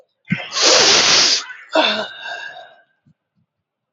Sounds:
Sniff